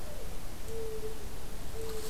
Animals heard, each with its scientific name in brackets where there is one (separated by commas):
Mourning Dove (Zenaida macroura)